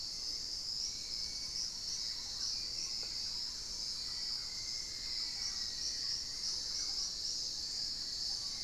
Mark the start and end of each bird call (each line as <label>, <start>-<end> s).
Hauxwell's Thrush (Turdus hauxwelli), 0.0-8.6 s
unidentified bird, 2.0-8.6 s
Thrush-like Wren (Campylorhynchus turdinus), 3.0-7.3 s
Black-faced Antthrush (Formicarius analis), 3.7-6.4 s
Fasciated Antshrike (Cymbilaimus lineatus), 7.5-8.6 s